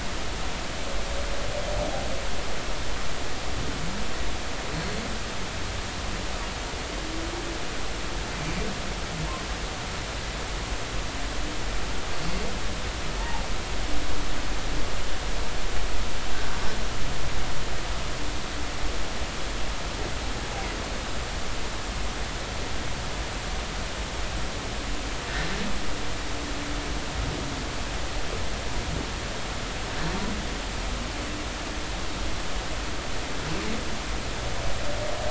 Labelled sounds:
13.2	13.4	humpback whale, 0.80 to 0.99 kHz
25.3	25.5	humpback whale, 1.5 to 1.9 kHz

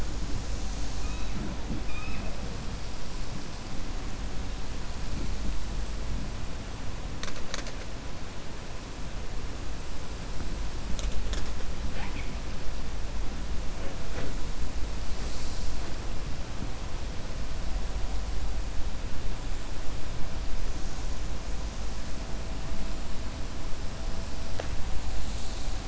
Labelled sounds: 1.8	2.3	killer whale, 0.65 to 3.8 kHz

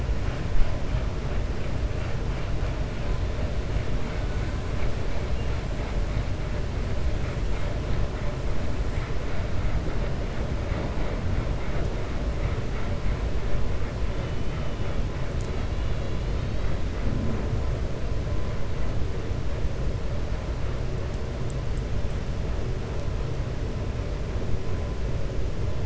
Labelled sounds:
14.1	15.0	killer whale, 2.1 to 3.6 kHz

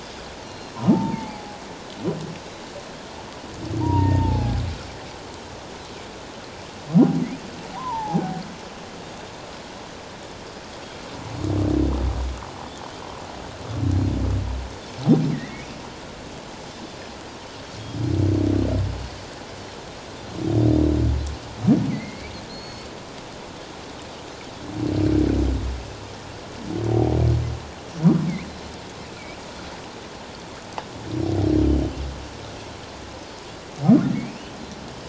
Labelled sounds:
0.4	0.8	Pacific white-sided dolphin, 2.7 to 5.7 kHz
0.9	1.6	humpback whale, 0.78 to 2.5 kHz
3.8	4.6	humpback whale, 0.78 to 1.9 kHz
7.8	8.4	humpback whale, 0.78 to 1.1 kHz
15.3	15.7	humpback whale, 1.8 to 2.3 kHz
21.9	22.3	humpback whale, 1.9 to 2.4 kHz
22.5	22.9	Pacific white-sided dolphin, 4.0 to 6.6 kHz
34.1	34.6	humpback whale, 2.2 to 3.1 kHz

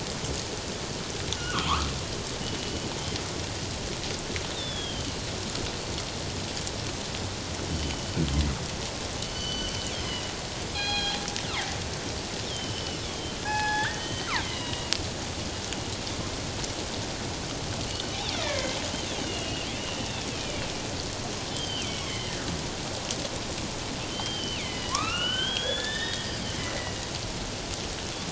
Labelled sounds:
1.3	1.9	killer whale, northern resident, G clan, 0.88 to 1.6 kHz
4.5	5.2	killer whale, northern resident, G clan, 2.9 to 3.8 kHz
7.7	8.2	killer whale, northern resident, G clan, 2.9 to 3.1 kHz
9.2	10.3	killer whale, northern resident, G clan, 2.8 to 6.2 kHz
10.7	11.2	killer whale, northern resident, G clan, 1.6 to 4.2 kHz
12.5	14.9	killer whale, northern resident, G clan, 0.78 to 6.2 kHz
17.9	18.8	killer whale, northern resident, G clan, 1.5 to 3.1 kHz
19.1	20.6	killer whale, northern resident, G clan, 2.2 to 3.7 kHz
21.5	22.4	killer whale, northern resident, G clan, 1.8 to 5.7 kHz
24.1	26.6	killer whale, northern resident, G clan, 0.97 to 5.1 kHz

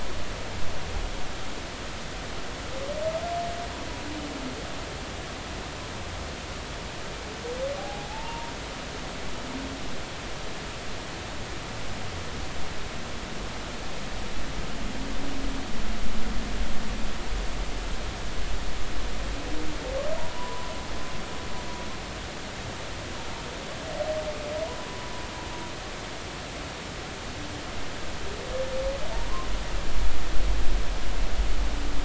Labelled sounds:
7.8	8.5	humpback whale, 0.80 to 0.99 kHz
20.3	20.7	humpback whale, 0.93 to 1.1 kHz

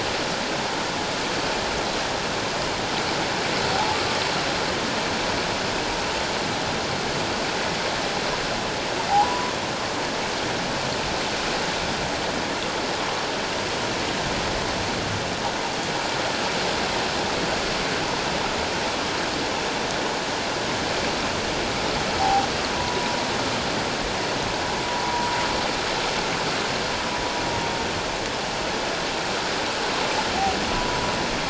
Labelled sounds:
3.7	4.0	humpback whale, 0.78 to 1.0 kHz
9.1	9.6	humpback whale, 0.78 to 1.1 kHz
22.2	23.1	humpback whale, 0.78 to 1.0 kHz
24.8	25.3	humpback whale, 0.91 to 1.1 kHz
30.7	31.0	humpback whale, 0.94 to 1.0 kHz

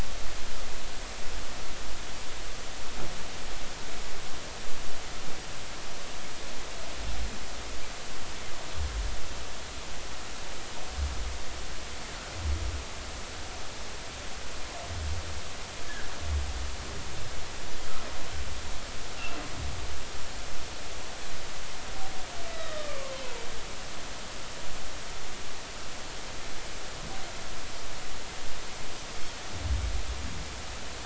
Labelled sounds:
15.8	16.1	humpback whale, 1.5 to 1.8 kHz
19.2	19.4	humpback whale, 2.6 to 2.8 kHz
22.5	23.1	humpback whale, 1.0 to 3.9 kHz

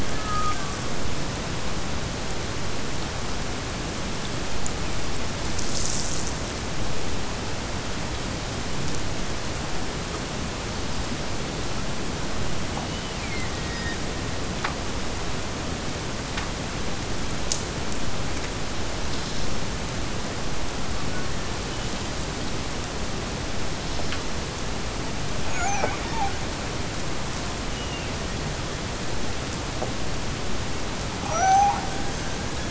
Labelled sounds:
31.2	32.6	killer whale, Bigg's (transient), Gulf of Alaska transient, 0.46 to 2.6 kHz

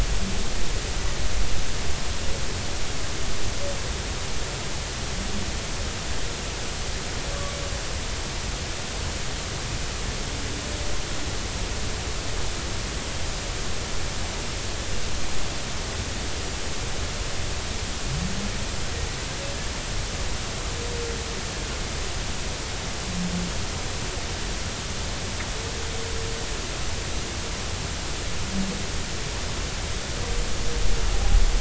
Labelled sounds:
7.3	7.6	humpback whale, 1.1 to 1.2 kHz

